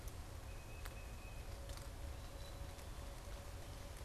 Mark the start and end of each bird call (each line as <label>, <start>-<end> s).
Tufted Titmouse (Baeolophus bicolor), 0.3-1.5 s
Black-capped Chickadee (Poecile atricapillus), 1.8-2.9 s